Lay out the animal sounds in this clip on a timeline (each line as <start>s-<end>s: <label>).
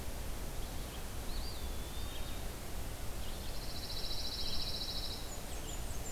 0.0s-6.1s: Red-eyed Vireo (Vireo olivaceus)
1.2s-2.5s: Eastern Wood-Pewee (Contopus virens)
3.2s-5.4s: Pine Warbler (Setophaga pinus)
5.1s-6.1s: Blackburnian Warbler (Setophaga fusca)